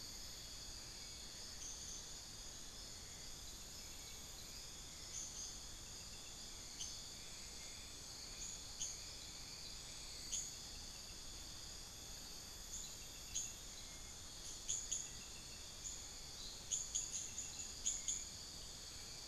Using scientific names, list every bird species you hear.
Campylorhynchus turdinus, unidentified bird, Turdus hauxwelli